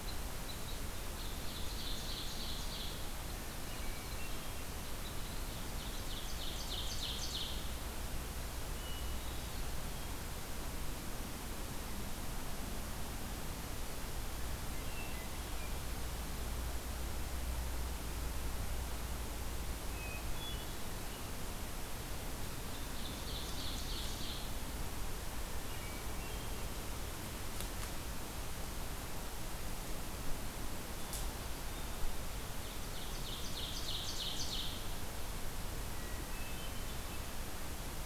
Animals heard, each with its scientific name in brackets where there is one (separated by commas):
Ovenbird (Seiurus aurocapilla), Hermit Thrush (Catharus guttatus), Red Crossbill (Loxia curvirostra)